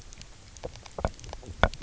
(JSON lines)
{"label": "biophony, knock croak", "recorder": "SoundTrap 300"}